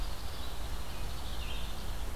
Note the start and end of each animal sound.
[0.00, 2.10] unknown mammal
[0.00, 2.16] Red-eyed Vireo (Vireo olivaceus)

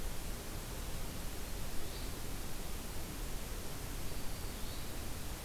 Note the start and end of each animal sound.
[1.70, 2.15] Hermit Thrush (Catharus guttatus)
[3.93, 4.73] Black-throated Green Warbler (Setophaga virens)
[4.46, 4.98] Hermit Thrush (Catharus guttatus)

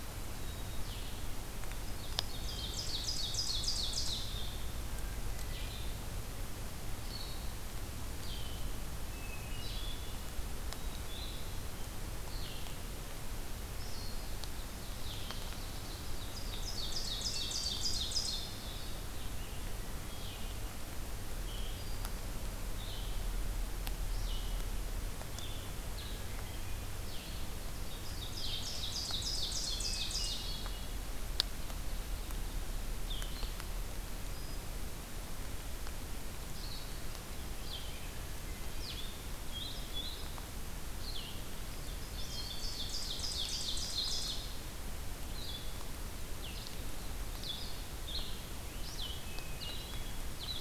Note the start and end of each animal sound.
[0.00, 50.61] Blue-headed Vireo (Vireo solitarius)
[0.31, 1.34] Black-capped Chickadee (Poecile atricapillus)
[1.85, 4.29] Ovenbird (Seiurus aurocapilla)
[4.86, 5.82] Hermit Thrush (Catharus guttatus)
[8.85, 10.53] Hermit Thrush (Catharus guttatus)
[10.65, 11.55] Black-capped Chickadee (Poecile atricapillus)
[14.20, 18.48] Ovenbird (Seiurus aurocapilla)
[16.95, 18.02] Hermit Thrush (Catharus guttatus)
[21.37, 22.24] Hermit Thrush (Catharus guttatus)
[25.93, 26.84] Hermit Thrush (Catharus guttatus)
[27.92, 30.44] Ovenbird (Seiurus aurocapilla)
[29.81, 30.83] Hermit Thrush (Catharus guttatus)
[34.16, 34.89] Hermit Thrush (Catharus guttatus)
[38.20, 39.12] Hermit Thrush (Catharus guttatus)
[41.95, 44.53] Ovenbird (Seiurus aurocapilla)
[49.14, 50.16] Hermit Thrush (Catharus guttatus)

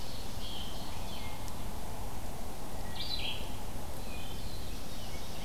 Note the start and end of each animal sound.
[0.00, 1.38] Ovenbird (Seiurus aurocapilla)
[0.00, 5.44] Red-eyed Vireo (Vireo olivaceus)
[3.85, 5.44] Black-throated Blue Warbler (Setophaga caerulescens)
[3.94, 4.53] Wood Thrush (Hylocichla mustelina)

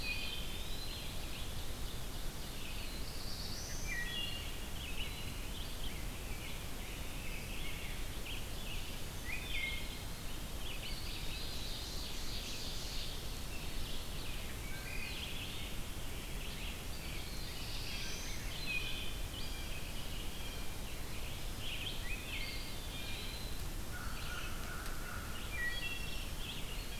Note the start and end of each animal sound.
[0.00, 0.50] Wood Thrush (Hylocichla mustelina)
[0.00, 1.17] Eastern Wood-Pewee (Contopus virens)
[0.00, 26.99] Red-eyed Vireo (Vireo olivaceus)
[0.77, 2.88] Ovenbird (Seiurus aurocapilla)
[2.58, 4.00] Black-throated Blue Warbler (Setophaga caerulescens)
[3.65, 4.64] Wood Thrush (Hylocichla mustelina)
[3.99, 5.43] Eastern Wood-Pewee (Contopus virens)
[5.04, 8.04] Rose-breasted Grosbeak (Pheucticus ludovicianus)
[9.22, 10.04] Wood Thrush (Hylocichla mustelina)
[10.75, 11.96] Eastern Wood-Pewee (Contopus virens)
[11.00, 13.19] Ovenbird (Seiurus aurocapilla)
[14.60, 15.53] Eastern Wood-Pewee (Contopus virens)
[14.61, 15.25] Wood Thrush (Hylocichla mustelina)
[15.91, 18.77] Rose-breasted Grosbeak (Pheucticus ludovicianus)
[16.93, 18.61] Black-throated Blue Warbler (Setophaga caerulescens)
[18.46, 19.27] Wood Thrush (Hylocichla mustelina)
[18.69, 20.90] Blue Jay (Cyanocitta cristata)
[21.98, 22.74] Wood Thrush (Hylocichla mustelina)
[22.26, 23.65] Eastern Wood-Pewee (Contopus virens)
[23.77, 25.38] American Crow (Corvus brachyrhynchos)
[25.43, 26.30] Wood Thrush (Hylocichla mustelina)

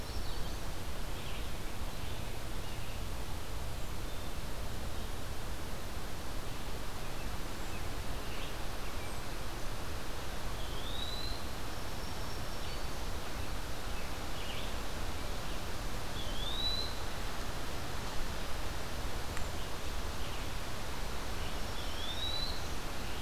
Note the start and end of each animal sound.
[0.00, 0.71] Common Yellowthroat (Geothlypis trichas)
[0.00, 0.80] Black-throated Green Warbler (Setophaga virens)
[0.00, 23.22] Red-eyed Vireo (Vireo olivaceus)
[10.37, 11.47] Eastern Wood-Pewee (Contopus virens)
[11.61, 13.11] Black-throated Green Warbler (Setophaga virens)
[15.90, 17.06] Eastern Wood-Pewee (Contopus virens)
[21.47, 22.87] Black-throated Green Warbler (Setophaga virens)
[21.58, 22.65] Eastern Wood-Pewee (Contopus virens)

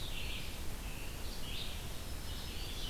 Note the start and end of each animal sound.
[0.00, 2.90] Red-eyed Vireo (Vireo olivaceus)
[1.87, 2.90] Black-throated Green Warbler (Setophaga virens)

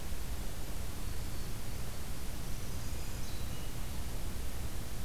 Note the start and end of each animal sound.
[0.93, 1.55] Black-throated Green Warbler (Setophaga virens)
[2.29, 3.39] Northern Parula (Setophaga americana)
[2.70, 4.10] Hermit Thrush (Catharus guttatus)

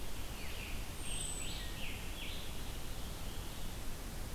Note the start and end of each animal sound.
[0.00, 2.63] Scarlet Tanager (Piranga olivacea)
[0.83, 1.75] Wood Thrush (Hylocichla mustelina)

